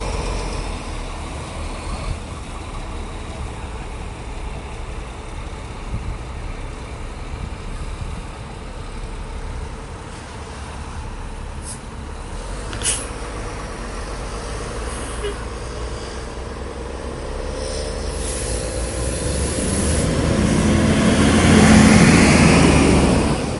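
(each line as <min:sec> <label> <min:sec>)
0:00.0 Bus engine sounds. 0:02.4
0:12.6 A bus starting its route. 0:23.6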